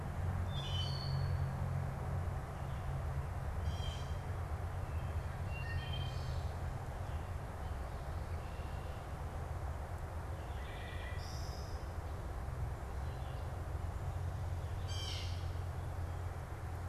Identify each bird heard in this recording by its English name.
Blue Jay, Wood Thrush